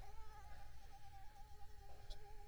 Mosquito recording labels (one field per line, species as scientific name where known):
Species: Mansonia uniformis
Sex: female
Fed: unfed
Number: one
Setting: cup